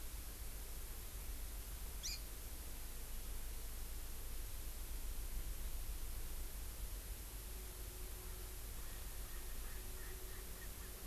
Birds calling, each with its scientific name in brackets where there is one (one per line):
Erckel's Francolin (Pternistis erckelii)
Hawaii Amakihi (Chlorodrepanis virens)